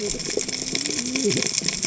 {"label": "biophony, cascading saw", "recorder": "HydroMoth"}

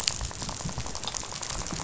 {"label": "biophony, rattle", "recorder": "SoundTrap 500"}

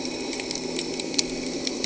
{"label": "anthrophony, boat engine", "recorder": "HydroMoth"}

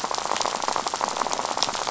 {"label": "biophony, rattle", "recorder": "SoundTrap 500"}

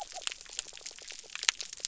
{"label": "biophony", "recorder": "SoundTrap 300"}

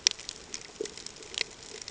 {"label": "ambient", "recorder": "HydroMoth"}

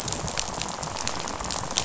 {"label": "biophony, rattle", "recorder": "SoundTrap 500"}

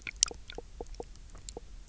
{"label": "biophony, knock croak", "recorder": "SoundTrap 300"}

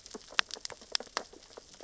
{"label": "biophony, sea urchins (Echinidae)", "recorder": "SoundTrap 600 or HydroMoth"}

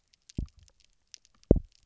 {"label": "biophony, double pulse", "recorder": "SoundTrap 300"}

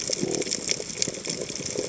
{"label": "biophony", "recorder": "HydroMoth"}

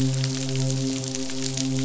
{"label": "biophony, midshipman", "recorder": "SoundTrap 500"}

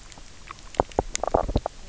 {"label": "biophony, knock croak", "recorder": "SoundTrap 300"}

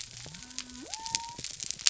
{"label": "biophony", "recorder": "SoundTrap 300"}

